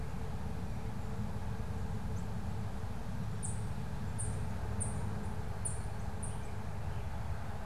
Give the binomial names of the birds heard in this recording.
Seiurus aurocapilla